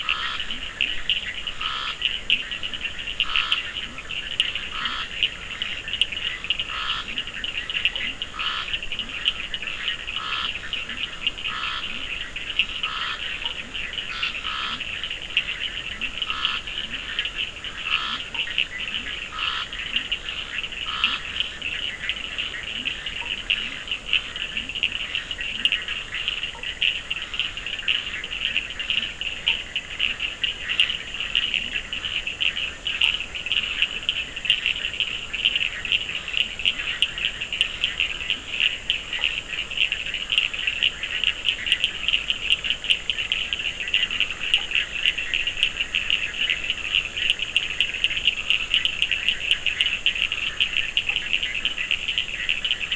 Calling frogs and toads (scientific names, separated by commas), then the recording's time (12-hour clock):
Scinax perereca, Boana bischoffi, Sphaenorhynchus surdus, Leptodactylus latrans, Boana faber
9:00pm